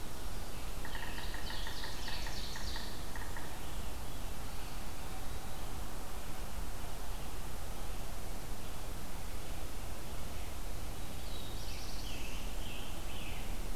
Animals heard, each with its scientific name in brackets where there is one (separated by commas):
Ovenbird (Seiurus aurocapilla), Yellow-bellied Sapsucker (Sphyrapicus varius), Veery (Catharus fuscescens), Scarlet Tanager (Piranga olivacea), Eastern Wood-Pewee (Contopus virens), Black-throated Blue Warbler (Setophaga caerulescens)